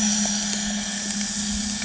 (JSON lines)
{"label": "anthrophony, boat engine", "recorder": "HydroMoth"}